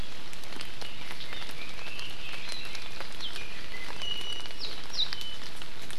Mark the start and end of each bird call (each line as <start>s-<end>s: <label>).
3.8s-4.6s: Iiwi (Drepanis coccinea)
4.6s-4.7s: Warbling White-eye (Zosterops japonicus)
5.0s-5.1s: Warbling White-eye (Zosterops japonicus)